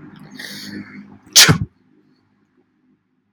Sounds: Sneeze